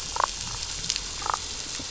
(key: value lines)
label: biophony, damselfish
recorder: SoundTrap 500